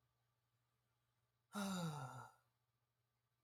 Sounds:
Sigh